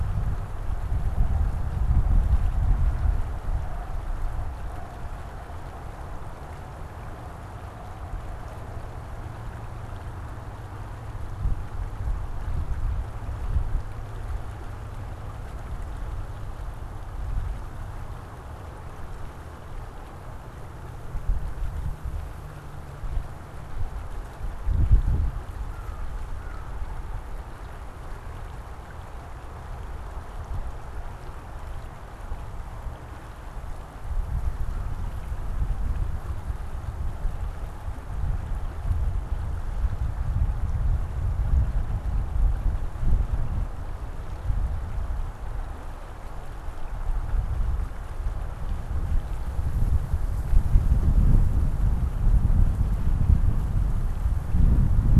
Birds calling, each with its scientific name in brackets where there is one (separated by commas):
American Crow (Corvus brachyrhynchos)